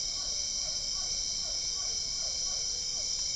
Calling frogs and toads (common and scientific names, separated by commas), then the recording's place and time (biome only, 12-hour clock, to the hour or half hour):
Physalaemus cuvieri
Cerrado, ~8pm